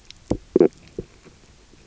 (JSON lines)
{"label": "biophony, stridulation", "recorder": "SoundTrap 300"}